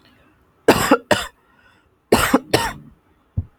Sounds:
Cough